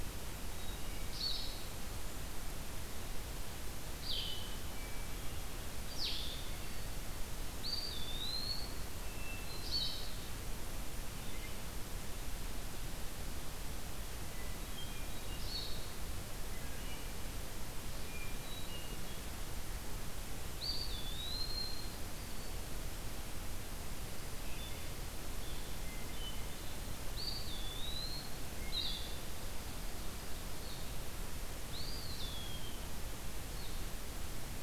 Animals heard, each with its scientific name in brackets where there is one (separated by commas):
Ovenbird (Seiurus aurocapilla), Eastern Wood-Pewee (Contopus virens), Hermit Thrush (Catharus guttatus), Blue-headed Vireo (Vireo solitarius), Black-throated Green Warbler (Setophaga virens), Wood Thrush (Hylocichla mustelina)